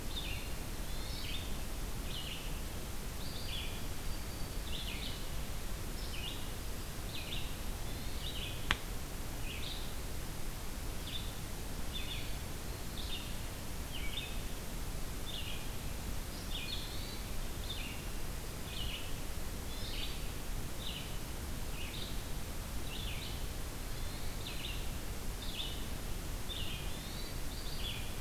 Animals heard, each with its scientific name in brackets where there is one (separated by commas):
Hermit Thrush (Catharus guttatus), Red-eyed Vireo (Vireo olivaceus), Black-throated Green Warbler (Setophaga virens)